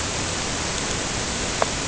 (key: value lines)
label: ambient
recorder: HydroMoth